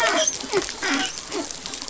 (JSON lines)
{"label": "biophony, dolphin", "recorder": "SoundTrap 500"}